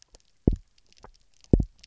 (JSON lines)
{"label": "biophony, double pulse", "recorder": "SoundTrap 300"}